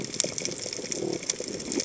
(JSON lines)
{"label": "biophony", "recorder": "HydroMoth"}